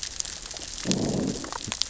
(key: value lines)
label: biophony, growl
recorder: SoundTrap 600 or HydroMoth